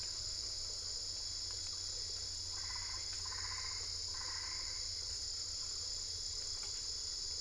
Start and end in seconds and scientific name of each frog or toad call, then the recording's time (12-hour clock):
2.5	5.1	Boana albopunctata
4:30am